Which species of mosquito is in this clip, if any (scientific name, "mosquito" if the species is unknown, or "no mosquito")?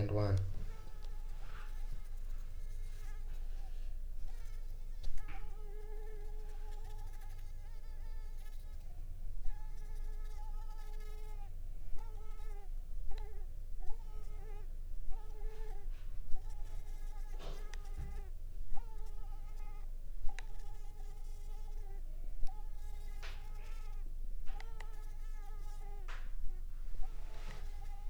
Culex pipiens complex